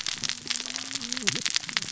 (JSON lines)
{"label": "biophony, cascading saw", "recorder": "SoundTrap 600 or HydroMoth"}